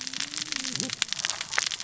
{"label": "biophony, cascading saw", "recorder": "SoundTrap 600 or HydroMoth"}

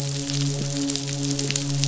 {"label": "biophony, midshipman", "recorder": "SoundTrap 500"}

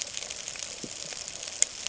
{"label": "ambient", "recorder": "HydroMoth"}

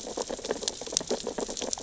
{"label": "biophony, sea urchins (Echinidae)", "recorder": "SoundTrap 600 or HydroMoth"}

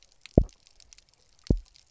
{"label": "biophony, double pulse", "recorder": "SoundTrap 300"}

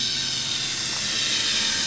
{"label": "anthrophony, boat engine", "recorder": "SoundTrap 500"}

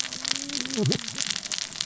{"label": "biophony, cascading saw", "recorder": "SoundTrap 600 or HydroMoth"}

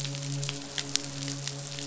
{"label": "biophony, midshipman", "recorder": "SoundTrap 500"}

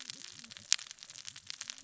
{"label": "biophony, cascading saw", "recorder": "SoundTrap 600 or HydroMoth"}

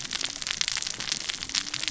{"label": "biophony, cascading saw", "recorder": "SoundTrap 600 or HydroMoth"}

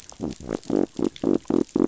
{"label": "biophony", "recorder": "SoundTrap 500"}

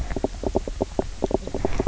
{"label": "biophony, knock croak", "recorder": "SoundTrap 300"}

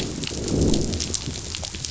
{"label": "biophony, growl", "recorder": "SoundTrap 500"}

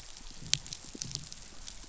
{"label": "biophony, pulse", "recorder": "SoundTrap 500"}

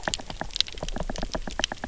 {"label": "biophony, knock", "recorder": "SoundTrap 300"}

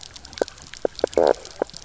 {"label": "biophony, knock croak", "recorder": "SoundTrap 300"}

